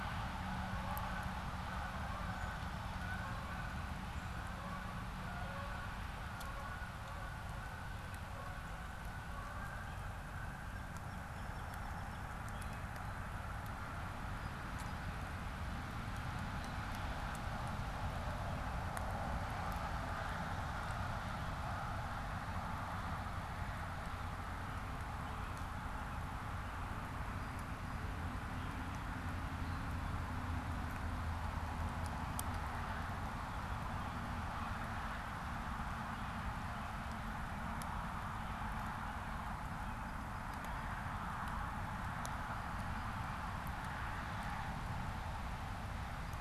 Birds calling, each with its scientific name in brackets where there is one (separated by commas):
Song Sparrow (Melospiza melodia)